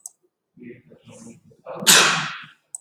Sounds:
Sneeze